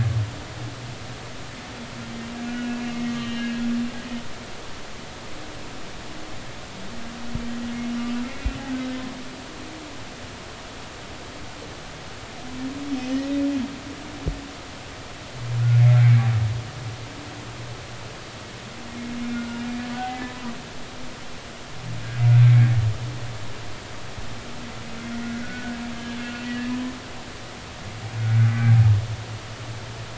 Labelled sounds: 2.5	3.6	humpback whale, 1.4 to 3.2 kHz
8.2	8.5	humpback whale, 2.0 to 2.3 kHz
16.0	16.2	humpback whale, 2.0 to 2.4 kHz
19.3	19.6	humpback whale, 1.3 to 1.5 kHz
20.0	20.3	humpback whale, 2.0 to 2.1 kHz
22.4	22.7	humpback whale, 2.1 to 2.3 kHz
25.4	25.7	humpback whale, 1.4 to 1.5 kHz
26.2	26.5	humpback whale, 2.6 to 2.9 kHz

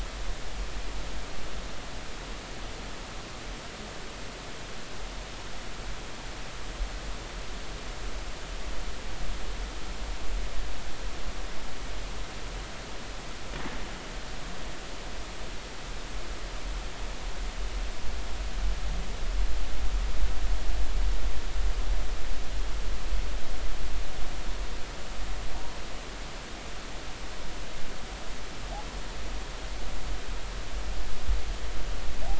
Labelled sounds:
25.6	25.8	humpback whale, 0.90 to 1.1 kHz

